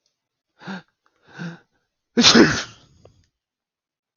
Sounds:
Sneeze